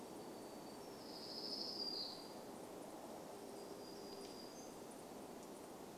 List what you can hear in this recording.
warbler song